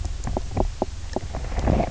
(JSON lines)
{"label": "biophony, knock croak", "recorder": "SoundTrap 300"}